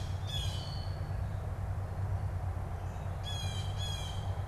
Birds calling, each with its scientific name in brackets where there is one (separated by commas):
Wood Thrush (Hylocichla mustelina), Blue Jay (Cyanocitta cristata)